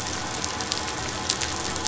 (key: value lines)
label: anthrophony, boat engine
recorder: SoundTrap 500